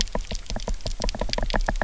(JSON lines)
{"label": "biophony, knock", "recorder": "SoundTrap 300"}